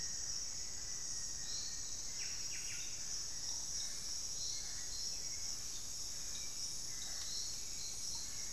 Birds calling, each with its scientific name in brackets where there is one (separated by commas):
Black-faced Antthrush (Formicarius analis), Hauxwell's Thrush (Turdus hauxwelli), Buff-breasted Wren (Cantorchilus leucotis)